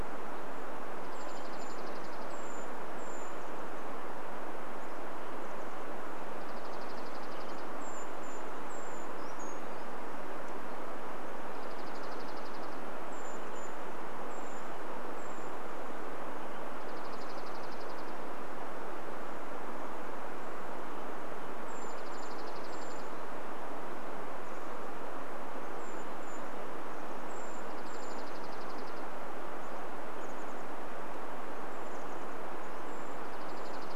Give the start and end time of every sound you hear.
[0, 4] Brown Creeper call
[0, 4] Dark-eyed Junco song
[2, 6] Chestnut-backed Chickadee call
[6, 8] Brown Creeper call
[6, 8] Dark-eyed Junco song
[8, 10] Brown Creeper song
[10, 14] Dark-eyed Junco song
[12, 16] Brown Creeper call
[16, 20] Dark-eyed Junco song
[20, 34] Brown Creeper call
[22, 24] Dark-eyed Junco song
[24, 26] Chestnut-backed Chickadee call
[26, 28] Dark-eyed Junco song
[30, 34] Chestnut-backed Chickadee call
[32, 34] Dark-eyed Junco song

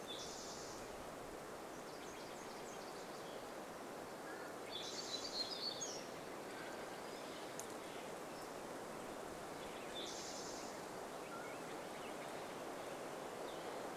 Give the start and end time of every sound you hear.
[0, 2] Spotted Towhee song
[0, 4] Nashville Warbler song
[2, 4] Steller's Jay call
[2, 4] unidentified sound
[4, 6] Olive-sided Flycatcher song
[4, 6] Spotted Towhee song
[4, 6] warbler song
[4, 8] Mountain Quail call
[6, 10] Steller's Jay call
[6, 14] unidentified sound
[10, 12] Mountain Quail call
[10, 12] Spotted Towhee song

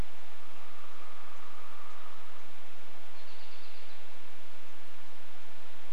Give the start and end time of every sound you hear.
[0, 4] woodpecker drumming
[2, 4] American Robin call

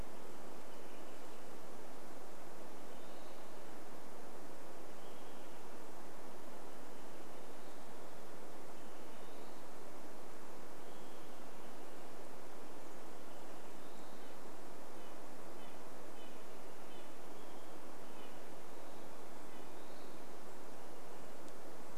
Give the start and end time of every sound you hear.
[0, 10] Olive-sided Flycatcher call
[2, 4] Western Wood-Pewee song
[4, 6] Olive-sided Flycatcher song
[6, 10] Western Wood-Pewee song
[10, 12] Olive-sided Flycatcher song
[12, 14] Olive-sided Flycatcher call
[12, 16] Western Wood-Pewee song
[14, 20] Red-breasted Nuthatch song
[18, 22] Western Wood-Pewee song
[20, 22] Olive-sided Flycatcher call

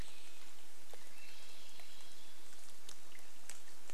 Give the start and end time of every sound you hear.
[0, 2] unidentified sound
[0, 4] Swainson's Thrush song
[0, 4] rain

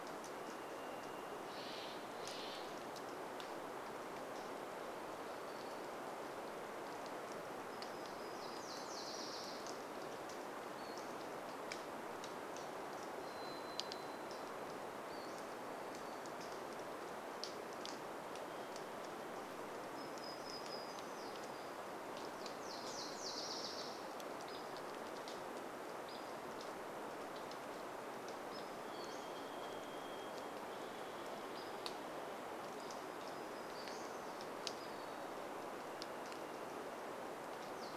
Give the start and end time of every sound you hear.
[0, 2] Varied Thrush song
[0, 4] Steller's Jay call
[0, 38] rain
[4, 6] unidentified sound
[6, 10] warbler song
[8, 10] Nashville Warbler song
[10, 12] Pacific-slope Flycatcher call
[12, 16] Varied Thrush song
[14, 16] Pacific-slope Flycatcher call
[18, 20] Varied Thrush song
[20, 22] warbler song
[22, 24] Nashville Warbler song
[28, 30] Pacific-slope Flycatcher call
[28, 32] Varied Thrush song
[32, 34] Pacific-slope Flycatcher call
[32, 36] warbler song
[36, 38] Nashville Warbler song
[36, 38] Varied Thrush song

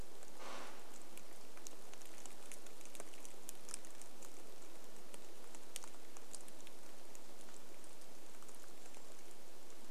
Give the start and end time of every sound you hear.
[0, 2] tree creak
[0, 10] rain
[8, 10] Brown Creeper call

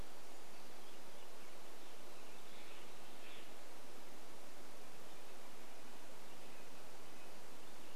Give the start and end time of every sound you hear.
[0, 2] unidentified sound
[2, 4] Steller's Jay call
[4, 8] Red-breasted Nuthatch song

